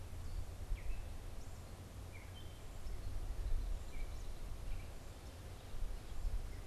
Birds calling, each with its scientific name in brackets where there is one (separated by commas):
Gray Catbird (Dumetella carolinensis)